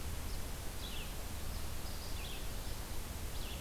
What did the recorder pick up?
Red-eyed Vireo